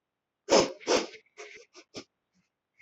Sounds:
Sniff